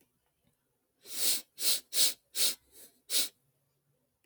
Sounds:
Sniff